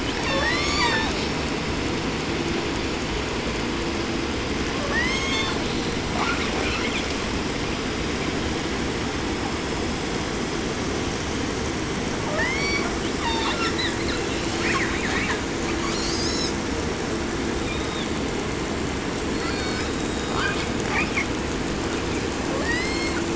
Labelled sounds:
0.0	1.4	killer whale, southern resident, call S36, 0.50 to 8.0 kHz
4.7	7.2	killer whale, southern resident, 0.56 to 8.0 kHz
12.2	12.9	killer whale, southern resident, 0.50 to 8.0 kHz
13.2	14.2	killer whale, southern resident, call S36 and call S10, 0.45 to 7.4 kHz
14.3	15.4	killer whale, southern resident, call S10, 0.48 to 8.0 kHz
15.6	16.6	killer whale, 0.55 to 8.0 kHz
17.6	18.2	killer whale, 0.95 to 5.4 kHz
19.2	21.4	killer whale, southern resident, 0.53 to 8.0 kHz
22.5	23.3	killer whale, southern resident, 0.53 to 8.0 kHz

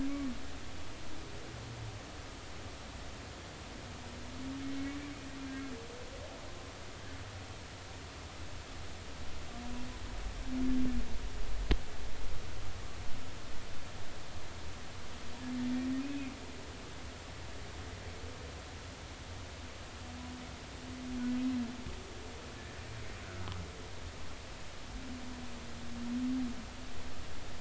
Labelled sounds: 16.0	16.4	humpback whale, 2.3 to 2.6 kHz

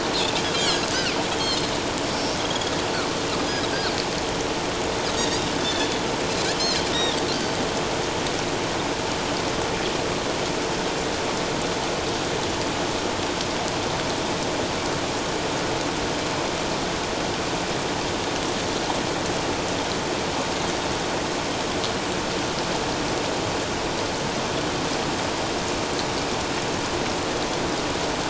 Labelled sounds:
1.2	1.7	Pacific white-sided dolphin, 3.0 to 4.4 kHz
2.0	2.7	Pacific white-sided dolphin, 3.2 to 6.9 kHz
5.2	6.0	Pacific white-sided dolphin, 3.3 to 3.8 kHz
6.6	6.8	Pacific white-sided dolphin, 3.8 to 4.3 kHz

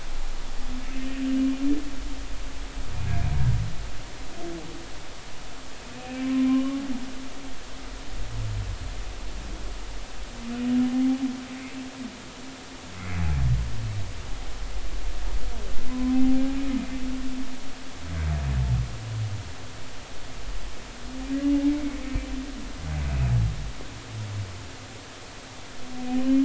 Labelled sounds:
6.2	6.8	humpback whale, 0.99 to 1.2 kHz
15.9	16.4	humpback whale, 0.80 to 1.1 kHz

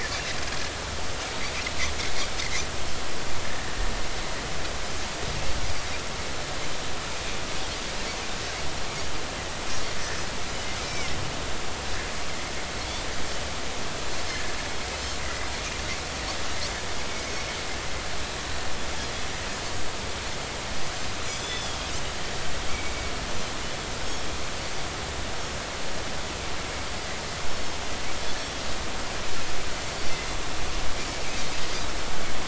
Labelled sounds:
10.8	11.2	Pacific white-sided dolphin, 1.9 to 2.4 kHz
14.3	14.5	Pacific white-sided dolphin, 1.6 to 1.9 kHz
15.2	15.5	Pacific white-sided dolphin, 1.9 to 2.1 kHz
21.2	21.9	Pacific white-sided dolphin, 3.2 to 6.2 kHz
22.7	23.1	Pacific white-sided dolphin, 2.2 to 2.4 kHz
27.5	27.8	Pacific white-sided dolphin, 5.2 to 5.5 kHz

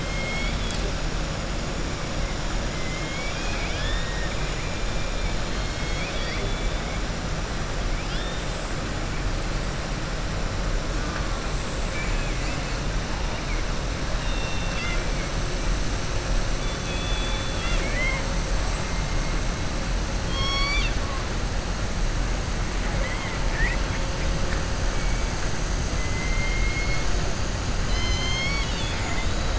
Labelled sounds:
0.0	0.8	killer whale, southern resident, 2.1 to 7.7 kHz
2.7	4.3	killer whale, southern resident, 1.6 to 6.7 kHz
5.4	6.9	killer whale, southern resident, 1.9 to 5.2 kHz
11.8	12.6	killer whale, southern resident, 1.7 to 3.4 kHz
14.1	15.0	killer whale, southern resident, 1.4 to 5.5 kHz
16.6	18.3	killer whale, southern resident, 1.0 to 4.9 kHz
20.2	21.0	killer whale, southern resident, 1.1 to 7.9 kHz
22.8	23.4	killer whale, southern resident, 0.80 to 3.1 kHz
26.0	27.0	killer whale, southern resident, 1.3 to 2.2 kHz

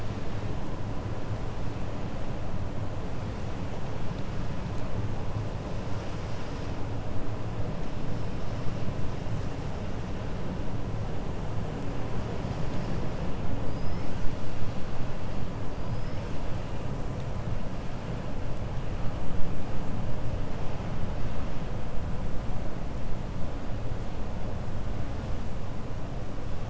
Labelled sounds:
13.6	14.3	killer whale, 4.7 to 6.3 kHz

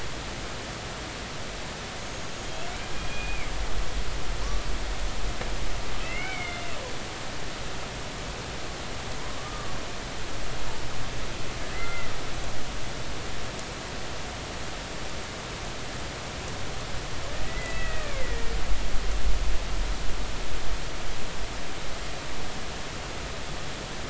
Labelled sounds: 2.0	2.3	humpback whale, 6.4 to 6.6 kHz
3.1	3.5	humpback whale, 2.1 to 2.5 kHz
6.0	6.8	humpback whale, 2.0 to 3.1 kHz
9.4	9.7	humpback whale, 1.1 to 1.2 kHz
11.7	12.1	humpback whale, 1.3 to 2.1 kHz
17.5	18.4	humpback whale, 1.7 to 2.7 kHz

